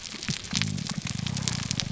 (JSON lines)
{"label": "biophony", "recorder": "SoundTrap 300"}